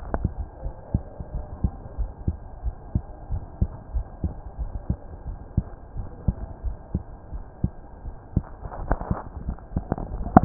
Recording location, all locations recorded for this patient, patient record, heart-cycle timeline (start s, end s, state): mitral valve (MV)
aortic valve (AV)+pulmonary valve (PV)+tricuspid valve (TV)+mitral valve (MV)
#Age: Child
#Sex: Male
#Height: 136.0 cm
#Weight: 26.3 kg
#Pregnancy status: False
#Murmur: Absent
#Murmur locations: nan
#Most audible location: nan
#Systolic murmur timing: nan
#Systolic murmur shape: nan
#Systolic murmur grading: nan
#Systolic murmur pitch: nan
#Systolic murmur quality: nan
#Diastolic murmur timing: nan
#Diastolic murmur shape: nan
#Diastolic murmur grading: nan
#Diastolic murmur pitch: nan
#Diastolic murmur quality: nan
#Outcome: Normal
#Campaign: 2015 screening campaign
0.00	0.60	unannotated
0.60	0.74	S1
0.74	0.90	systole
0.90	1.02	S2
1.02	1.32	diastole
1.32	1.46	S1
1.46	1.58	systole
1.58	1.72	S2
1.72	1.95	diastole
1.95	2.12	S1
2.12	2.25	systole
2.25	2.38	S2
2.38	2.62	diastole
2.62	2.74	S1
2.74	2.91	systole
2.91	3.04	S2
3.04	3.30	diastole
3.30	3.44	S1
3.44	3.56	systole
3.56	3.70	S2
3.70	3.92	diastole
3.92	4.06	S1
4.06	4.22	systole
4.22	4.36	S2
4.36	4.56	diastole
4.56	4.72	S1
4.72	4.86	systole
4.86	4.98	S2
4.98	5.23	diastole
5.23	5.38	S1
5.38	5.54	systole
5.54	5.68	S2
5.68	5.93	diastole
5.93	6.08	S1
6.08	6.24	systole
6.24	6.36	S2
6.36	6.61	diastole
6.61	6.78	S1
6.78	6.90	systole
6.90	7.04	S2
7.04	7.29	diastole
7.29	7.44	S1
7.44	7.60	systole
7.60	7.74	S2
7.74	8.02	diastole
8.02	8.16	S1
8.16	8.32	systole
8.32	8.50	S2
8.50	8.76	diastole
8.76	8.93	S1
8.93	9.07	systole
9.07	9.20	S2
9.20	9.42	diastole
9.42	9.56	S1
9.56	9.72	systole
9.72	9.84	S2
9.84	10.45	unannotated